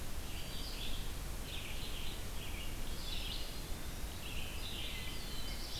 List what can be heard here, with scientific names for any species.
Vireo olivaceus, Setophaga virens, Contopus virens, Catharus guttatus, Setophaga caerulescens